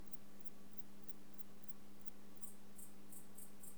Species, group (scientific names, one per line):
Antaxius spinibrachius
Orthoptera